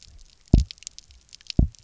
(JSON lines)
{"label": "biophony, double pulse", "recorder": "SoundTrap 300"}